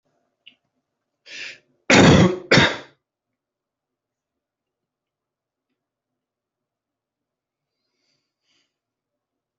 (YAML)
expert_labels:
- quality: ok
  cough_type: unknown
  dyspnea: false
  wheezing: false
  stridor: false
  choking: false
  congestion: false
  nothing: true
  diagnosis: lower respiratory tract infection
  severity: mild
age: 29
gender: male
respiratory_condition: true
fever_muscle_pain: true
status: symptomatic